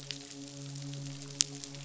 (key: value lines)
label: biophony, midshipman
recorder: SoundTrap 500